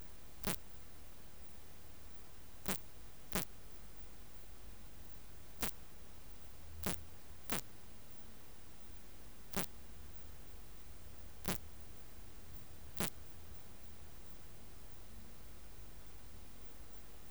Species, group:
Poecilimon veluchianus
Orthoptera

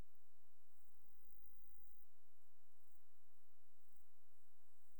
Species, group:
Stenobothrus fischeri
Orthoptera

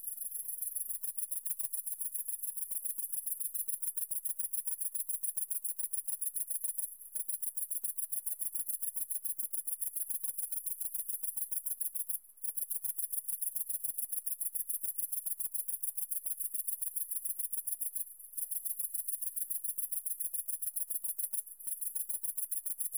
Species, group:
Tettigonia viridissima
Orthoptera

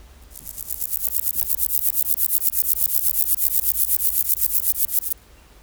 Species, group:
Chorthippus corsicus
Orthoptera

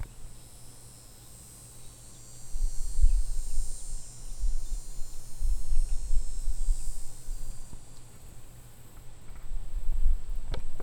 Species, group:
Neotibicen davisi
Cicadidae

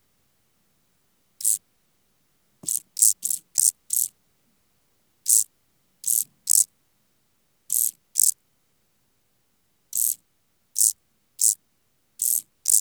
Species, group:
Chorthippus brunneus
Orthoptera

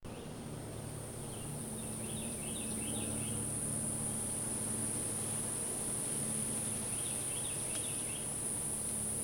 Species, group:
Glaucopsaltria viridis
Cicadidae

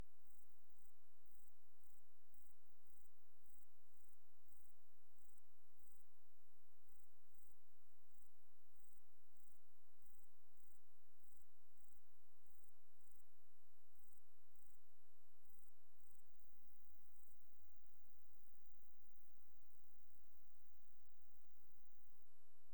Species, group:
Euchorthippus declivus
Orthoptera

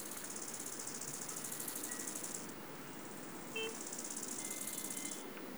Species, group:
Chorthippus biguttulus
Orthoptera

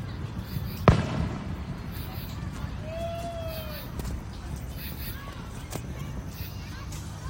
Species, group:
Pterophylla camellifolia
Orthoptera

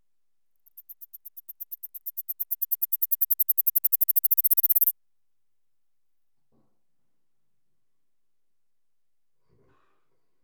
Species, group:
Platystolus martinezii
Orthoptera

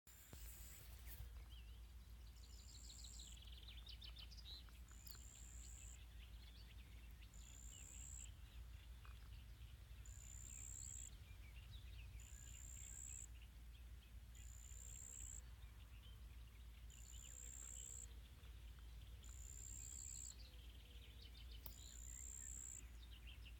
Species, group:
Pteronemobius heydenii
Orthoptera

